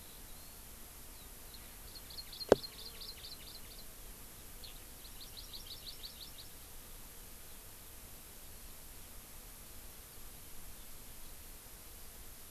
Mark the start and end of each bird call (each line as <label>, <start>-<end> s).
Eurasian Skylark (Alauda arvensis), 0.0-0.6 s
Hawaii Amakihi (Chlorodrepanis virens), 1.9-3.8 s
Eurasian Skylark (Alauda arvensis), 4.6-4.8 s
Hawaii Amakihi (Chlorodrepanis virens), 5.0-6.5 s